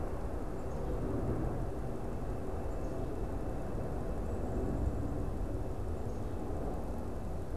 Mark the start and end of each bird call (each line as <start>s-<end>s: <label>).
0.0s-7.6s: unidentified bird